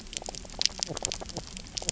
{"label": "biophony, knock croak", "recorder": "SoundTrap 300"}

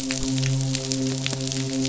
{"label": "biophony, midshipman", "recorder": "SoundTrap 500"}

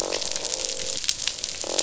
{"label": "biophony, croak", "recorder": "SoundTrap 500"}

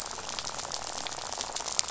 {"label": "biophony, rattle", "recorder": "SoundTrap 500"}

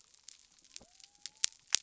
{"label": "biophony", "recorder": "SoundTrap 300"}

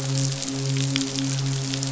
{"label": "biophony, midshipman", "recorder": "SoundTrap 500"}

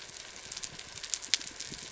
{"label": "biophony", "recorder": "SoundTrap 300"}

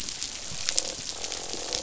{"label": "biophony, croak", "recorder": "SoundTrap 500"}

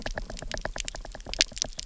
{"label": "biophony, knock", "recorder": "SoundTrap 300"}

